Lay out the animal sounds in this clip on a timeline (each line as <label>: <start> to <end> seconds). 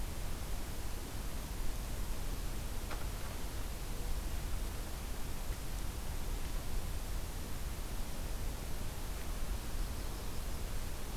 Yellow-rumped Warbler (Setophaga coronata): 9.5 to 11.0 seconds